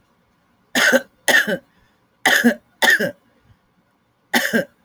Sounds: Cough